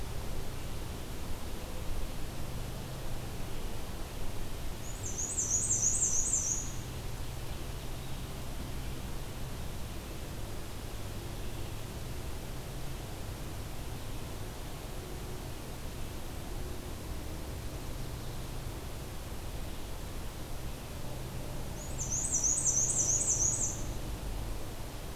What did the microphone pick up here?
Black-and-white Warbler